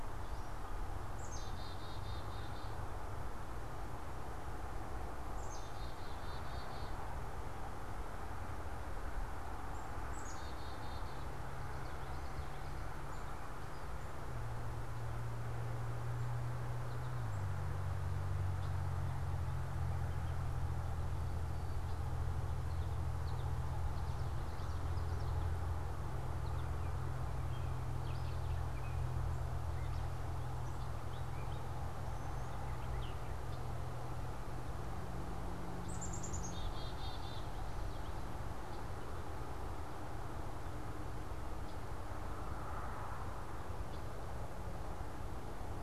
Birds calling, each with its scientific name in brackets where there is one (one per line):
American Goldfinch (Spinus tristis)
Black-capped Chickadee (Poecile atricapillus)
Gray Catbird (Dumetella carolinensis)